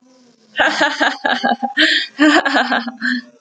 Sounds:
Laughter